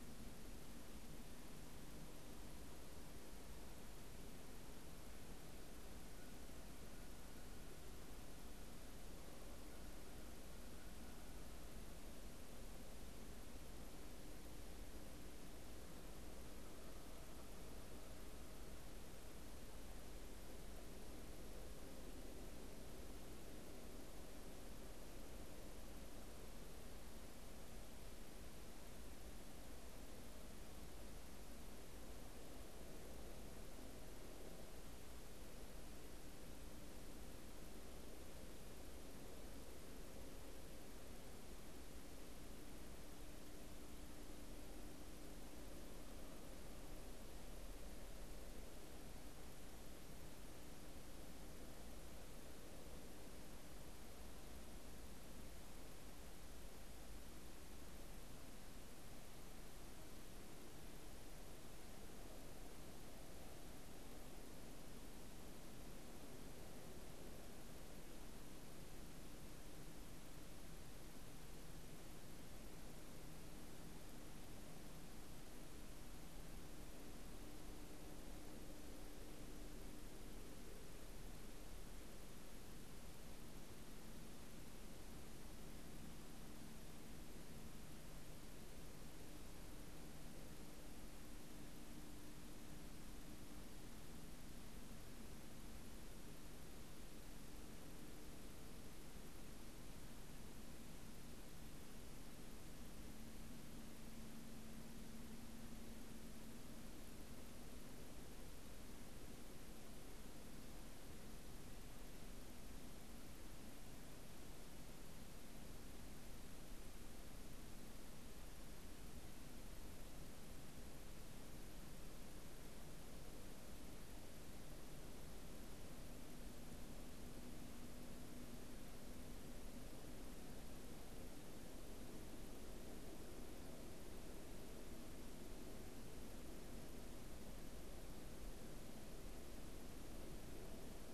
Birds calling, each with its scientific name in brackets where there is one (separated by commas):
Canada Goose (Branta canadensis)